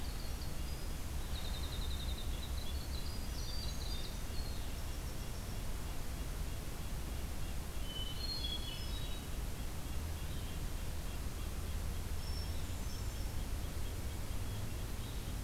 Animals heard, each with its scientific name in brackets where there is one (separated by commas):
Red-breasted Nuthatch (Sitta canadensis), Hermit Thrush (Catharus guttatus), Winter Wren (Troglodytes hiemalis)